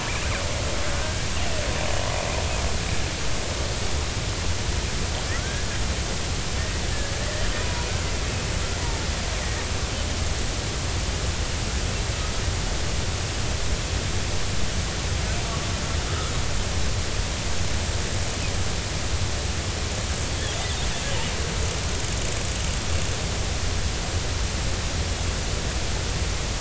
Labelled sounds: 1.0	1.3	killer whale, Bigg's (transient), 1.5 to 1.7 kHz
5.3	5.8	killer whale, Bigg's (transient), 1.3 to 1.8 kHz
7.6	7.9	killer whale, Bigg's (transient), 0.90 to 0.99 kHz
8.8	9.6	killer whale, Bigg's (transient), 0.83 to 2.0 kHz
16.1	16.3	killer whale, Bigg's (transient), 1.2 to 1.4 kHz

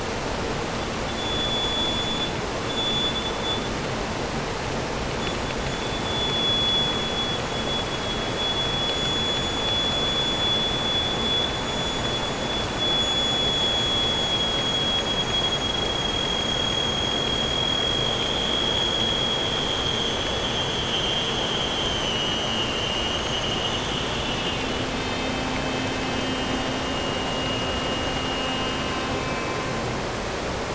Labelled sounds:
0.8	3.9	vessel noise, 3.2 to 7.1 kHz
4.9	30.7	vessel noise, 0.16 to 7.8 kHz

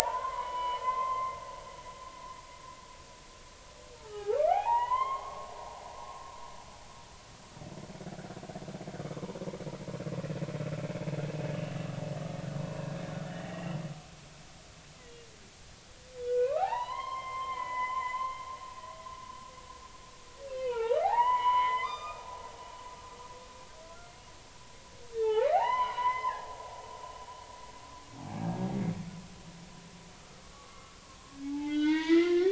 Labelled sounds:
0.1	1.4	humpback whale, 1.9 to 3.2 kHz
4.0	5.5	humpback whale, 0.80 to 3.3 kHz
8.1	8.4	humpback whale, 1.3 to 1.7 kHz
9.0	9.2	humpback whale, 0.99 to 1.3 kHz
13.3	13.8	humpback whale, 1.8 to 2.8 kHz
16.2	18.4	humpback whale, 0.80 to 4.3 kHz
20.5	22.3	humpback whale, 0.80 to 6.1 kHz
23.8	24.1	humpback whale, 1.3 to 1.5 kHz
25.1	26.5	humpback whale, 0.80 to 3.7 kHz
30.2	32.4	humpback whale, 0.80 to 4.9 kHz

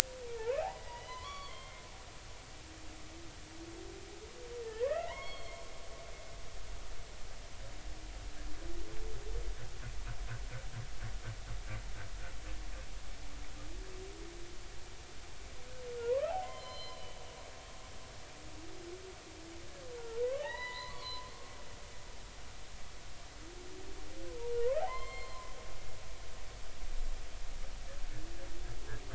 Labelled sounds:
0.2	1.8	humpback whale, 0.80 to 4.6 kHz
4.7	5.6	humpback whale, 0.83 to 4.5 kHz
16.0	17.1	humpback whale, 0.90 to 4.2 kHz
20.0	21.6	humpback whale, 0.80 to 4.7 kHz
24.8	25.4	humpback whale, 0.80 to 7.5 kHz

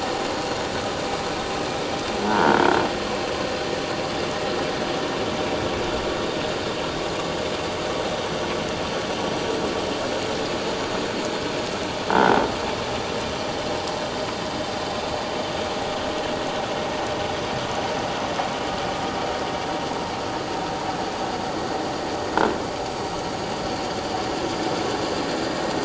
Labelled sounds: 2.3	2.6	croaking sound likely from a nearby submerged object, 0.84 to 1.6 kHz

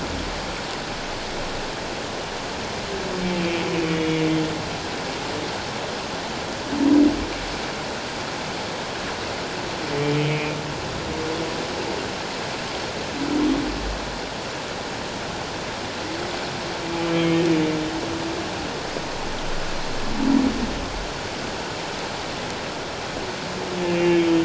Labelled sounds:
3.4	3.6	humpback whale, 2.5 to 2.6 kHz
10.2	10.6	humpback whale, 2.4 to 2.5 kHz
17.1	17.4	humpback whale, 2.1 to 3.2 kHz
23.8	24.4	humpback whale, 2.4 to 3.2 kHz

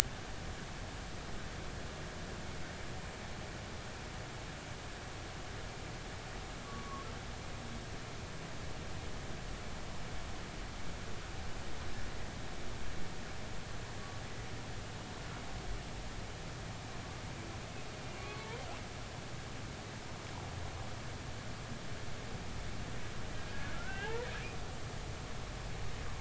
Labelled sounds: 6.7	7.1	humpback whale, 1.0 to 1.2 kHz
18.2	18.5	humpback whale, 1.0 to 1.2 kHz
23.7	24.3	humpback whale, 0.80 to 1.9 kHz

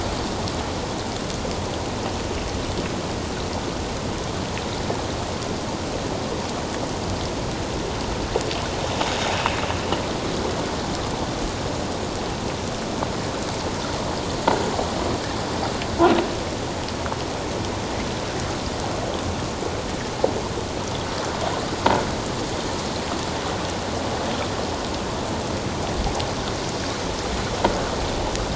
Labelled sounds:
9.3	9.6	sound from a nearby beach, 2.5 to 2.8 kHz

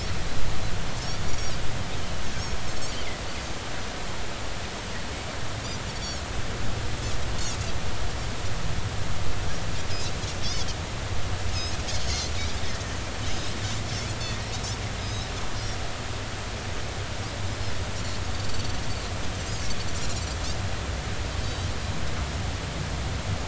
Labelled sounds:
1.3	1.5	Pacific white-sided dolphin, 5.4 to 6.0 kHz
11.5	11.8	Pacific white-sided dolphin, 5.0 to 6.7 kHz
13.0	14.5	Pacific white-sided dolphin, 1.8 to 4.4 kHz
15.0	15.3	Pacific white-sided dolphin, 4.9 to 5.4 kHz
18.3	18.8	Pacific white-sided dolphin, 4.4 to 4.7 kHz
21.4	21.7	Pacific white-sided dolphin, 3.0 to 4.8 kHz

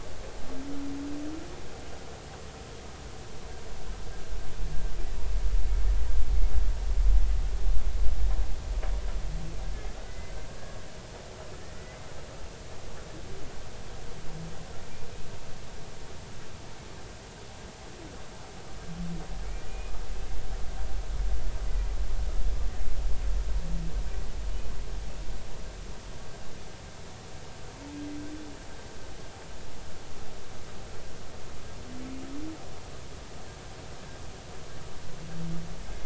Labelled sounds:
10.0	10.3	humpback whale, 1.4 to 2.1 kHz
11.6	12.1	humpback whale, 1.7 to 2.1 kHz
19.7	20.0	humpback whale, 2.4 to 2.5 kHz

